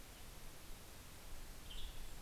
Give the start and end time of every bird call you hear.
0.6s-2.2s: Golden-crowned Kinglet (Regulus satrapa)
1.7s-2.2s: Western Tanager (Piranga ludoviciana)

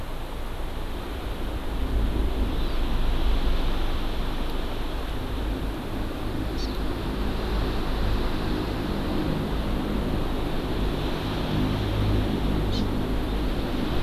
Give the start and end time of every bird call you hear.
2.5s-2.8s: Hawaii Amakihi (Chlorodrepanis virens)
6.5s-6.7s: Hawaii Amakihi (Chlorodrepanis virens)
12.7s-12.8s: Hawaii Amakihi (Chlorodrepanis virens)

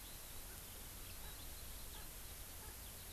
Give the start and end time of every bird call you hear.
1.0s-3.1s: Eurasian Skylark (Alauda arvensis)
1.2s-1.3s: Erckel's Francolin (Pternistis erckelii)
1.9s-2.1s: Erckel's Francolin (Pternistis erckelii)
2.6s-2.8s: Erckel's Francolin (Pternistis erckelii)

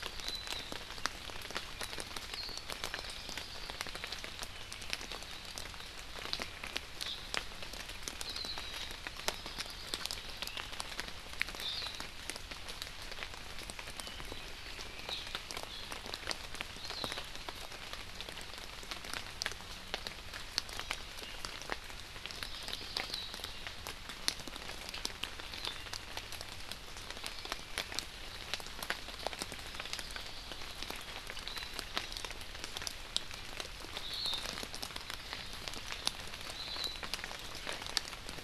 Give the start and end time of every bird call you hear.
2.7s-4.0s: Hawaii Creeper (Loxops mana)
9.2s-10.4s: Hawaii Creeper (Loxops mana)
22.2s-23.1s: Hawaii Creeper (Loxops mana)
29.6s-31.0s: Hawaii Creeper (Loxops mana)
32.0s-32.3s: Hawaii Amakihi (Chlorodrepanis virens)
34.0s-34.4s: Hawaii Akepa (Loxops coccineus)
36.5s-37.0s: Hawaii Akepa (Loxops coccineus)

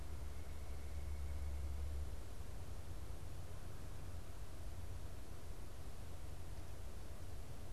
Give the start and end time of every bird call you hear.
0.0s-2.0s: White-breasted Nuthatch (Sitta carolinensis)

